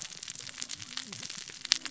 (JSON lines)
{"label": "biophony, cascading saw", "recorder": "SoundTrap 600 or HydroMoth"}